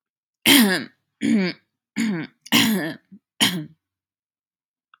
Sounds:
Throat clearing